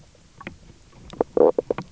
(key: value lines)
label: biophony, knock croak
recorder: SoundTrap 300